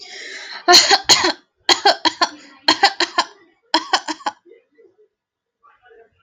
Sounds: Cough